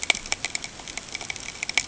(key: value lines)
label: ambient
recorder: HydroMoth